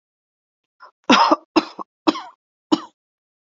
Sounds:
Cough